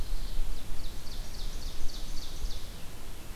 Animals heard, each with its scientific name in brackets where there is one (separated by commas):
Ovenbird (Seiurus aurocapilla), Veery (Catharus fuscescens)